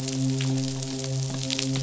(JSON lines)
{"label": "biophony, midshipman", "recorder": "SoundTrap 500"}